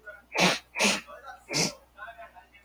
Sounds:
Sniff